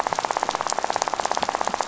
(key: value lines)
label: biophony, rattle
recorder: SoundTrap 500